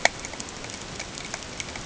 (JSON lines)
{"label": "ambient", "recorder": "HydroMoth"}